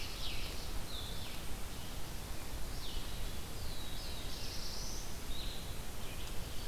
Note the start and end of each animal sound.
0.0s-0.8s: Scarlet Tanager (Piranga olivacea)
0.0s-6.7s: Red-eyed Vireo (Vireo olivaceus)
3.3s-5.2s: Black-throated Blue Warbler (Setophaga caerulescens)

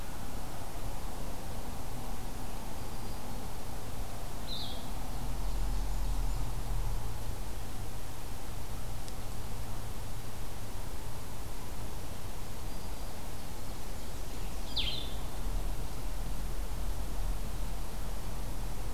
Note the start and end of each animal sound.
2.6s-3.5s: Black-throated Green Warbler (Setophaga virens)
4.3s-4.9s: Blue-headed Vireo (Vireo solitarius)
5.0s-6.8s: Ovenbird (Seiurus aurocapilla)
5.4s-6.5s: Blackburnian Warbler (Setophaga fusca)
12.6s-13.3s: Black-throated Green Warbler (Setophaga virens)
13.0s-14.9s: Ovenbird (Seiurus aurocapilla)
13.4s-14.5s: Blackburnian Warbler (Setophaga fusca)
14.6s-15.4s: Blue-headed Vireo (Vireo solitarius)

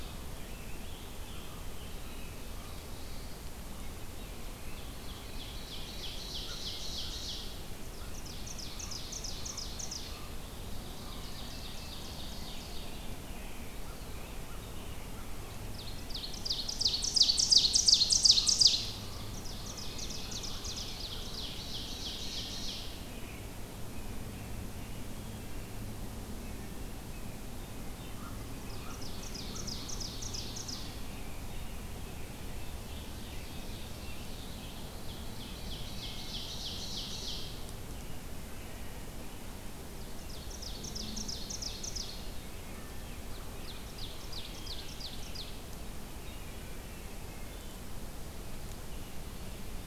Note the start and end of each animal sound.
0.0s-2.4s: Scarlet Tanager (Piranga olivacea)
2.3s-3.4s: Black-throated Blue Warbler (Setophaga caerulescens)
4.5s-13.2s: Ovenbird (Seiurus aurocapilla)
6.3s-10.4s: American Crow (Corvus brachyrhynchos)
7.6s-10.4s: American Robin (Turdus migratorius)
12.2s-14.5s: Scarlet Tanager (Piranga olivacea)
13.6s-14.2s: Eastern Wood-Pewee (Contopus virens)
13.7s-15.4s: American Crow (Corvus brachyrhynchos)
15.7s-23.1s: Ovenbird (Seiurus aurocapilla)
19.6s-21.7s: American Robin (Turdus migratorius)
23.8s-25.8s: American Robin (Turdus migratorius)
26.4s-26.8s: Wood Thrush (Hylocichla mustelina)
28.1s-29.7s: American Crow (Corvus brachyrhynchos)
28.6s-31.0s: Ovenbird (Seiurus aurocapilla)
30.3s-34.9s: American Robin (Turdus migratorius)
32.8s-34.8s: Ovenbird (Seiurus aurocapilla)
35.2s-37.7s: Ovenbird (Seiurus aurocapilla)
35.8s-36.4s: Wood Thrush (Hylocichla mustelina)
38.4s-39.0s: Wood Thrush (Hylocichla mustelina)
40.1s-42.2s: Ovenbird (Seiurus aurocapilla)
42.5s-43.1s: Wood Thrush (Hylocichla mustelina)
43.2s-45.7s: Ovenbird (Seiurus aurocapilla)
47.1s-47.8s: Wood Thrush (Hylocichla mustelina)

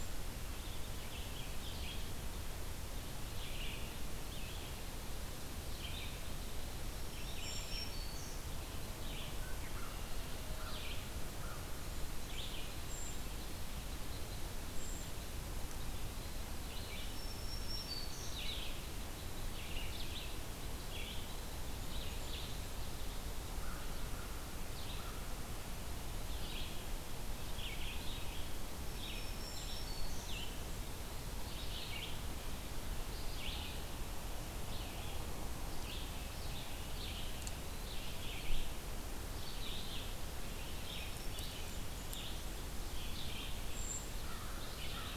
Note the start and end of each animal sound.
0.0s-33.9s: Red-eyed Vireo (Vireo olivaceus)
6.8s-8.4s: Black-throated Green Warbler (Setophaga virens)
7.4s-7.7s: Brown Creeper (Certhia americana)
9.3s-11.7s: American Crow (Corvus brachyrhynchos)
12.9s-13.2s: Brown Creeper (Certhia americana)
14.7s-15.1s: Brown Creeper (Certhia americana)
16.9s-18.4s: Black-throated Green Warbler (Setophaga virens)
21.7s-22.4s: Brown Creeper (Certhia americana)
23.4s-25.2s: American Crow (Corvus brachyrhynchos)
28.7s-30.5s: Black-throated Green Warbler (Setophaga virens)
29.3s-29.8s: Brown Creeper (Certhia americana)
34.6s-45.2s: Red-eyed Vireo (Vireo olivaceus)
37.0s-38.0s: Eastern Wood-Pewee (Contopus virens)
40.7s-41.6s: Black-throated Green Warbler (Setophaga virens)
41.3s-42.7s: Blackburnian Warbler (Setophaga fusca)
43.7s-44.1s: Brown Creeper (Certhia americana)
43.9s-45.2s: American Crow (Corvus brachyrhynchos)

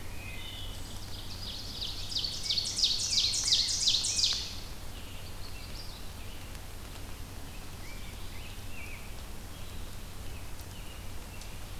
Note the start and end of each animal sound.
0.0s-1.0s: Wood Thrush (Hylocichla mustelina)
0.4s-4.7s: Ovenbird (Seiurus aurocapilla)
2.2s-4.4s: Rose-breasted Grosbeak (Pheucticus ludovicianus)
4.9s-6.2s: Magnolia Warbler (Setophaga magnolia)
7.2s-9.3s: Rose-breasted Grosbeak (Pheucticus ludovicianus)

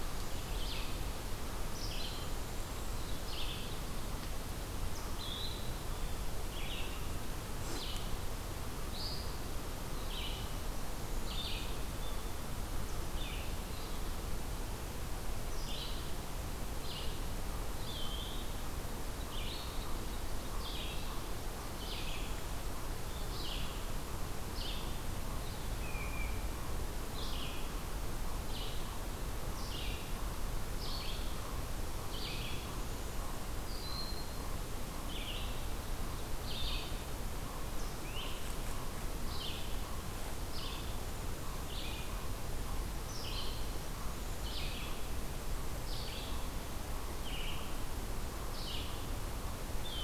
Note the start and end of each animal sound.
0.1s-50.0s: Red-eyed Vireo (Vireo olivaceus)
17.3s-50.0s: Eastern Chipmunk (Tamias striatus)
17.6s-18.5s: Eastern Wood-Pewee (Contopus virens)
25.7s-26.6s: unidentified call
49.5s-50.0s: Eastern Wood-Pewee (Contopus virens)

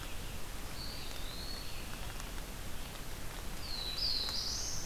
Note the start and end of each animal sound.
0.0s-4.9s: Red-eyed Vireo (Vireo olivaceus)
0.5s-2.1s: Eastern Wood-Pewee (Contopus virens)
3.4s-4.9s: Black-throated Blue Warbler (Setophaga caerulescens)

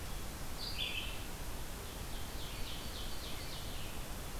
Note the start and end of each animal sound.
0.1s-1.4s: Red-eyed Vireo (Vireo olivaceus)
1.7s-3.9s: Ovenbird (Seiurus aurocapilla)

